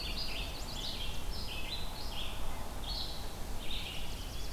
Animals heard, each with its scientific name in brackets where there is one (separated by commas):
Red-eyed Vireo (Vireo olivaceus), Black-throated Blue Warbler (Setophaga caerulescens), Chestnut-sided Warbler (Setophaga pensylvanica)